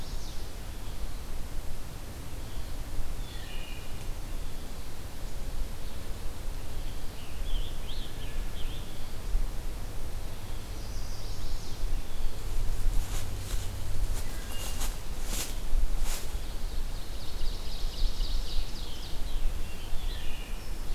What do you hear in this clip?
Chestnut-sided Warbler, Red-eyed Vireo, Wood Thrush, Scarlet Tanager, Ovenbird